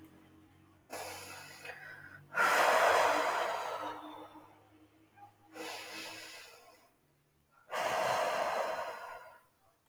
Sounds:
Sigh